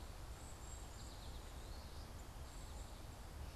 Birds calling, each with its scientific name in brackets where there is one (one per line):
unidentified bird
American Goldfinch (Spinus tristis)